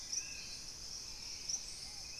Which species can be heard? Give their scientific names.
Trogon collaris, Turdus hauxwelli, Patagioenas subvinacea, Pygiptila stellaris